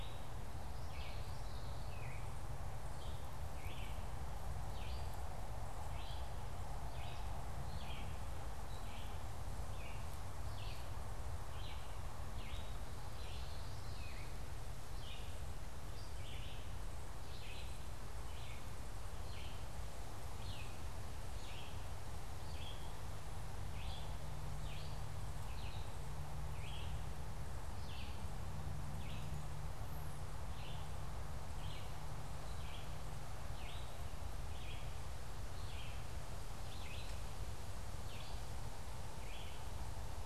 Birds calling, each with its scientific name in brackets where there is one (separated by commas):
Common Yellowthroat (Geothlypis trichas)